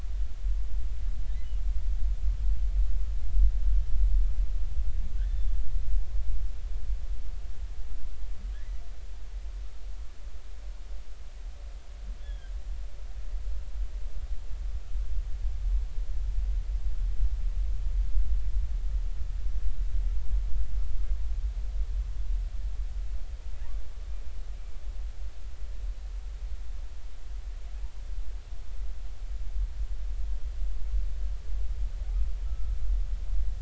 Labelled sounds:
5.3	5.6	humpback whale, 3.4 to 3.6 kHz
8.5	8.8	humpback whale, 1.6 to 2.0 kHz
12.2	12.5	humpback whale, 1.5 to 3.5 kHz

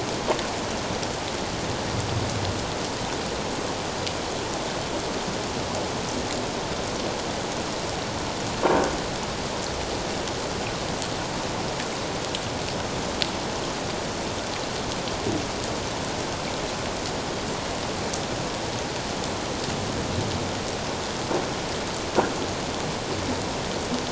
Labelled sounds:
8.7	8.9	croaking sound likely from a nearby submerged object, 1.4 to 1.7 kHz

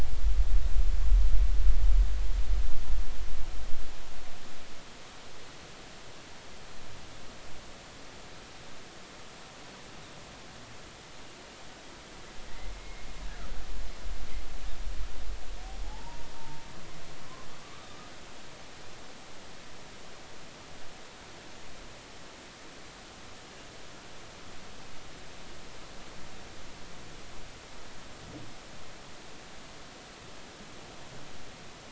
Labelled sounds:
12.8	13.0	humpback whale, 2.1 to 2.2 kHz
15.8	16.6	humpback whale, 0.80 to 0.99 kHz
17.6	17.9	humpback whale, 1.1 to 1.3 kHz

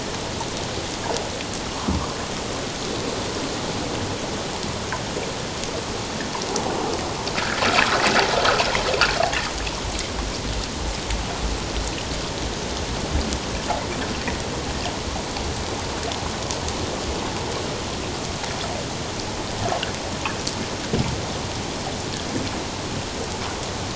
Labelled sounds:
7.3	7.6	water noise, 1.2 to 1.8 kHz

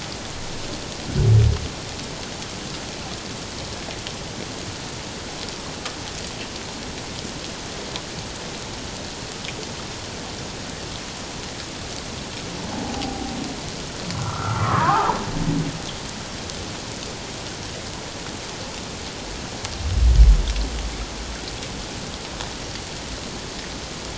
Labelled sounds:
12.7	13.3	humpback whale, 0.78 to 0.91 kHz
14.1	15.1	humpback whale, 0.78 to 1.8 kHz

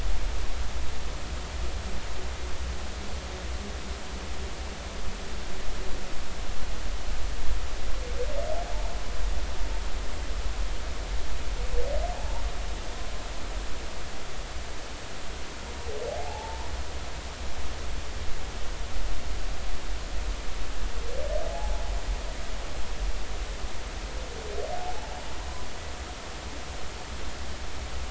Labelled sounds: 12.1	12.4	humpback whale, 0.80 to 0.99 kHz
16.1	16.7	humpback whale, 0.80 to 0.99 kHz
21.5	21.8	humpback whale, 0.80 to 0.99 kHz

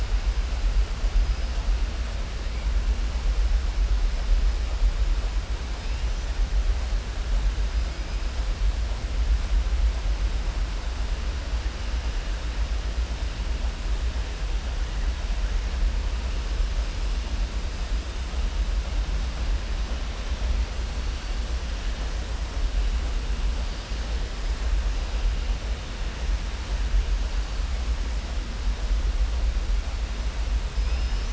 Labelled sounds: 30.7	31.3	killer whale, southern resident, 4.6 to 6.0 kHz

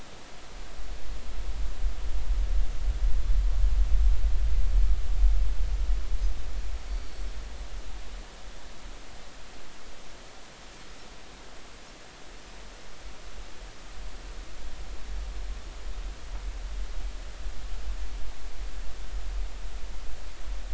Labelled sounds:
6.9	7.3	Pacific white-sided dolphin, 4.3 to 4.6 kHz

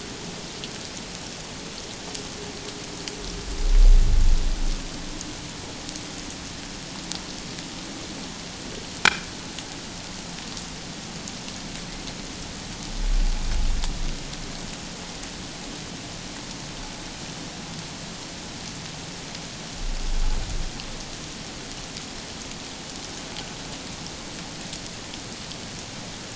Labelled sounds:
9.0	9.3	click-like sound, 2.3 to 2.6 kHz

